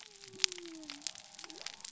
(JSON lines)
{"label": "biophony", "recorder": "SoundTrap 300"}